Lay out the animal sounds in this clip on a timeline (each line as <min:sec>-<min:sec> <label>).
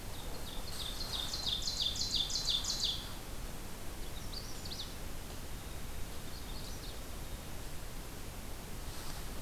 0:00.0-0:03.2 Ovenbird (Seiurus aurocapilla)
0:03.9-0:05.0 Magnolia Warbler (Setophaga magnolia)
0:06.2-0:07.1 Magnolia Warbler (Setophaga magnolia)